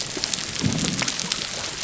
{"label": "biophony", "recorder": "SoundTrap 300"}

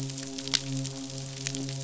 {"label": "biophony, midshipman", "recorder": "SoundTrap 500"}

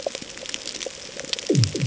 {"label": "anthrophony, bomb", "recorder": "HydroMoth"}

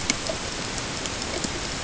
{"label": "ambient", "recorder": "HydroMoth"}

